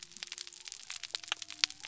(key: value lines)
label: biophony
recorder: SoundTrap 300